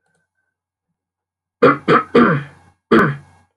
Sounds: Throat clearing